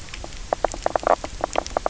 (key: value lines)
label: biophony, knock croak
recorder: SoundTrap 300